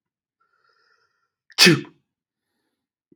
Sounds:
Sneeze